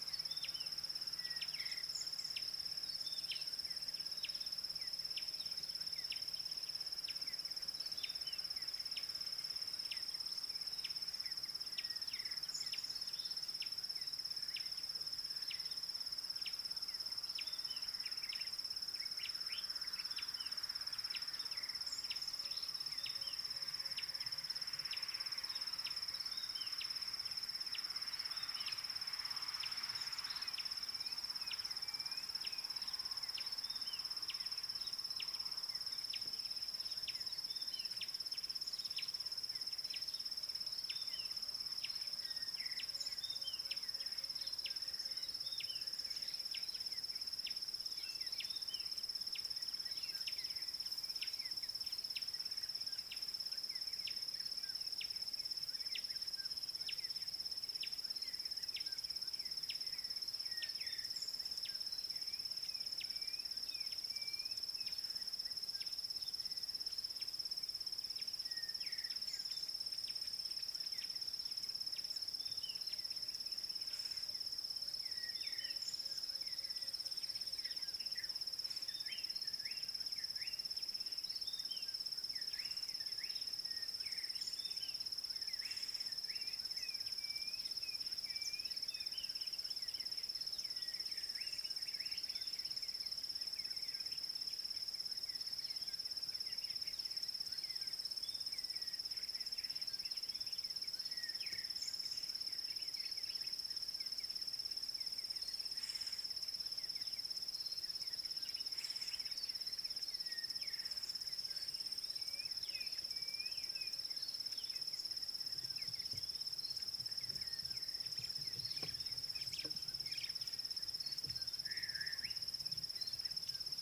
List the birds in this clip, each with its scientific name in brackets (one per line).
Slate-colored Boubou (Laniarius funebris)
African Bare-eyed Thrush (Turdus tephronotus)
Klaas's Cuckoo (Chrysococcyx klaas)
Gray Wren-Warbler (Calamonastes simplex)